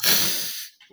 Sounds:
Sneeze